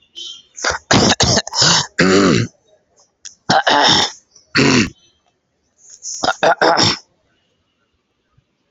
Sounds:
Throat clearing